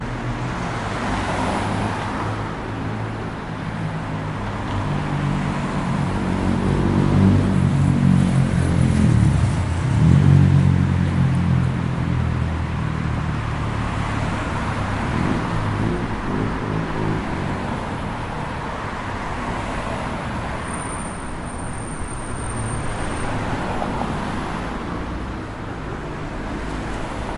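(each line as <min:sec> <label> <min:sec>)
0:00.0 Motor vehicles produce low rumbling sounds that increase and fade away as they pass through an open area. 0:27.4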